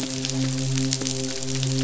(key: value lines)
label: biophony, midshipman
recorder: SoundTrap 500